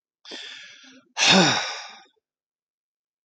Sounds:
Sigh